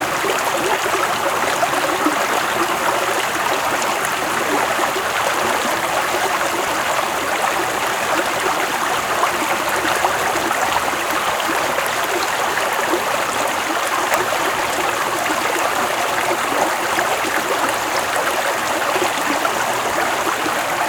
What is falling onto the stream?
water